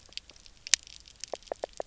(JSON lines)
{"label": "biophony", "recorder": "SoundTrap 300"}